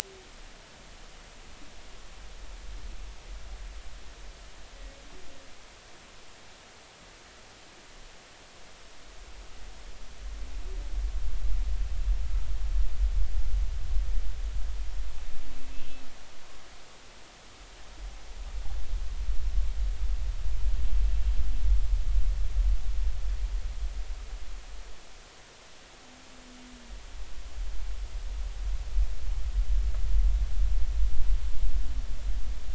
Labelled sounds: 15.7	16.0	humpback whale, 2.6 to 2.9 kHz

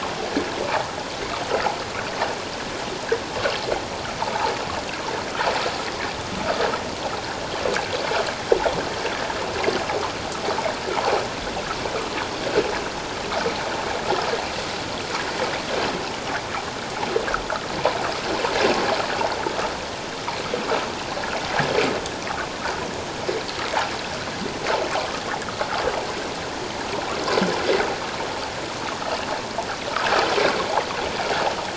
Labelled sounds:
4.2	4.5	water noise, 0.81 to 1.2 kHz

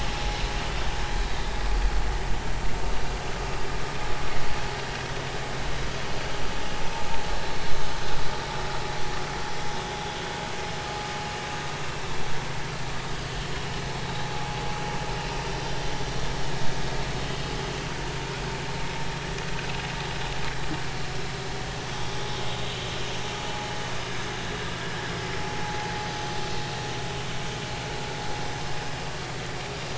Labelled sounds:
7.3	7.6	vessel noise, 3.9 to 4.1 kHz
26.5	26.9	vessel noise, 0.80 to 4.4 kHz

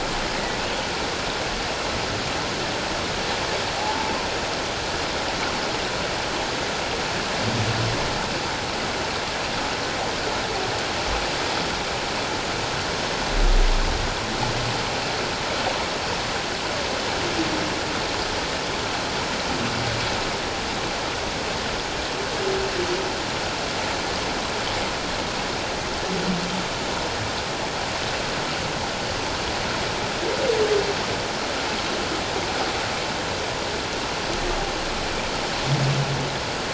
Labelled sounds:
3.8	4.1	humpback whale, 0.78 to 0.94 kHz

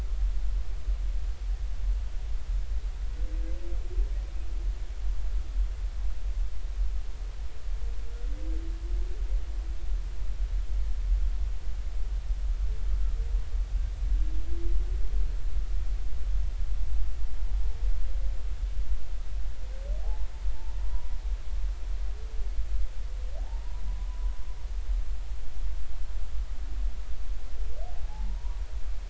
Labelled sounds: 20.0	20.3	humpback whale, 0.80 to 1.1 kHz
20.8	21.1	humpback whale, 0.93 to 1.1 kHz
27.9	28.6	humpback whale, 0.80 to 1.0 kHz

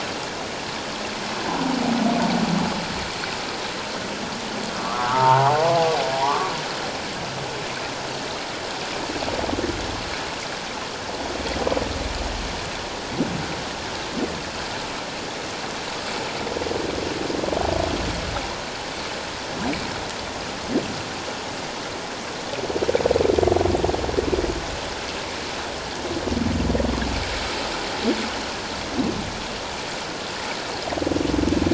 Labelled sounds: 1.4	1.8	humpback whale, 0.78 to 1.1 kHz
4.8	6.5	humpback whale, 0.78 to 1.5 kHz

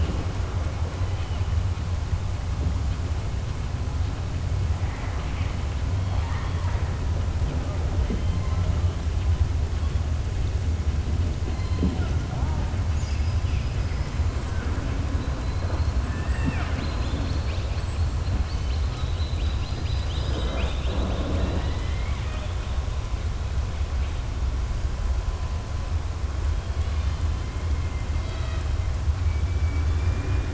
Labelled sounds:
4.8	5.6	killer whale, southern resident, 1.1 to 3.4 kHz
6.0	6.9	killer whale, southern resident, 0.65 to 4.1 kHz
12.8	14.1	killer whale, southern resident, 4.7 to 7.0 kHz
27.8	28.7	killer whale, southern resident, 0.65 to 4.6 kHz
29.2	30.5	killer whale, southern resident, 1.2 to 3.5 kHz

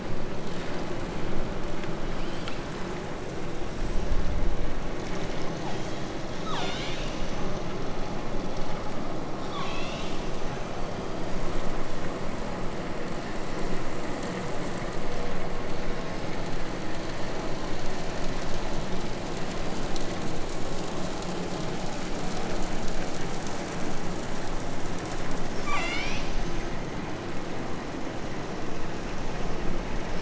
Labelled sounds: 2.0	2.6	killer whale, southern Alaska resident, 2.0 to 8.0 kHz
5.5	7.2	killer whale, southern Alaska resident, 0.20 to 8.0 kHz
9.4	10.7	killer whale, southern Alaska resident, 0.81 to 8.0 kHz
25.5	27.1	killer whale, southern Alaska resident, 0.68 to 8.0 kHz

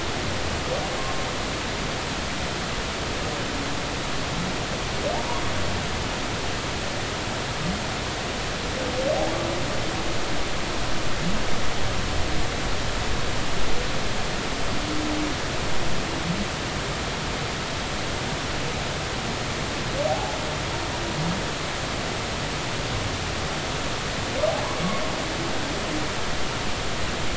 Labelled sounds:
20.1	20.4	humpback whale, 0.80 to 0.90 kHz

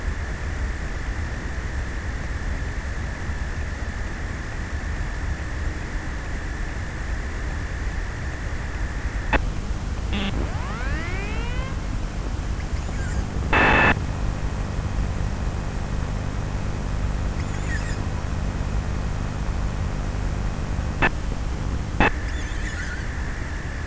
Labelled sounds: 16.7	19.6	killer whale, offshore, 1.3 to 8.0 kHz
21.8	23.8	killer whale, offshore, 0.71 to 8.0 kHz

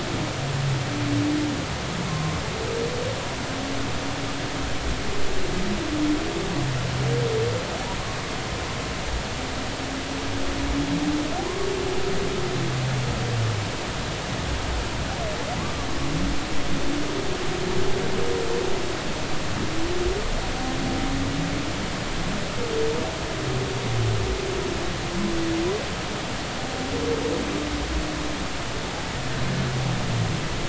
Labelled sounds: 2.1	2.4	humpback whale, 1.0 to 1.1 kHz
15.6	15.9	humpback whale, 1.0 to 1.2 kHz

